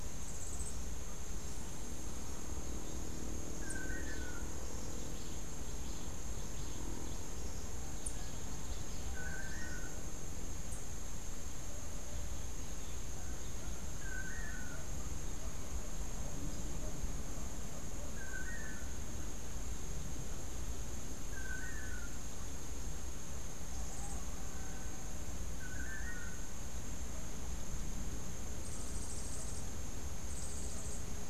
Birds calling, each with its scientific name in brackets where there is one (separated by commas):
Yellow-faced Grassquit (Tiaris olivaceus), Long-tailed Manakin (Chiroxiphia linearis)